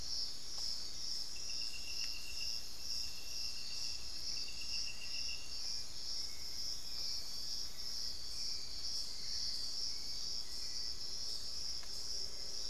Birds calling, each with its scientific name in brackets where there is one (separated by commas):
Little Tinamou (Crypturellus soui), Hauxwell's Thrush (Turdus hauxwelli)